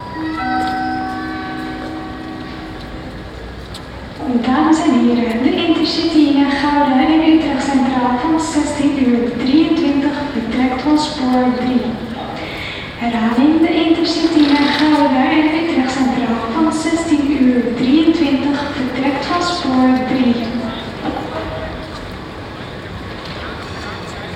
Is there an announcement for passengers?
yes